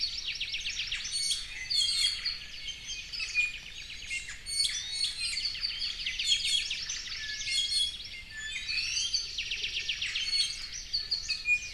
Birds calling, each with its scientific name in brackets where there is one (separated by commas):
Apapane (Himatione sanguinea), Hawaii Amakihi (Chlorodrepanis virens), Iiwi (Drepanis coccinea), Omao (Myadestes obscurus)